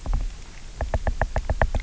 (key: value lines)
label: biophony, knock
recorder: SoundTrap 300